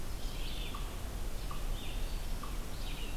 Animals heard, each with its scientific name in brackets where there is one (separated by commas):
unknown mammal, Red-eyed Vireo (Vireo olivaceus)